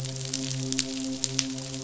{"label": "biophony, midshipman", "recorder": "SoundTrap 500"}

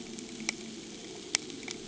{"label": "anthrophony, boat engine", "recorder": "HydroMoth"}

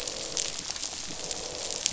{"label": "biophony, croak", "recorder": "SoundTrap 500"}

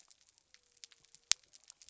{"label": "biophony", "recorder": "SoundTrap 300"}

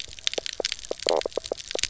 {"label": "biophony, knock croak", "recorder": "SoundTrap 300"}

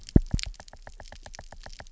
{"label": "biophony, knock", "recorder": "SoundTrap 300"}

